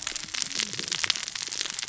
{"label": "biophony, cascading saw", "recorder": "SoundTrap 600 or HydroMoth"}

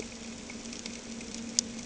{"label": "anthrophony, boat engine", "recorder": "HydroMoth"}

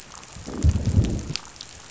{"label": "biophony, growl", "recorder": "SoundTrap 500"}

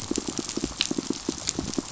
{"label": "biophony, pulse", "recorder": "SoundTrap 500"}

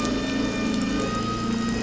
{"label": "anthrophony, boat engine", "recorder": "SoundTrap 500"}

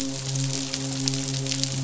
{"label": "biophony, midshipman", "recorder": "SoundTrap 500"}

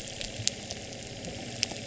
{"label": "anthrophony, boat engine", "recorder": "SoundTrap 300"}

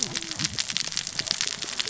{"label": "biophony, cascading saw", "recorder": "SoundTrap 600 or HydroMoth"}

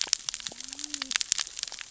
{"label": "biophony, cascading saw", "recorder": "SoundTrap 600 or HydroMoth"}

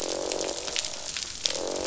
{"label": "biophony, croak", "recorder": "SoundTrap 500"}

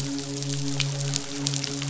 {"label": "biophony, midshipman", "recorder": "SoundTrap 500"}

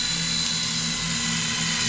{"label": "anthrophony, boat engine", "recorder": "SoundTrap 500"}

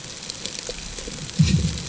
{"label": "anthrophony, bomb", "recorder": "HydroMoth"}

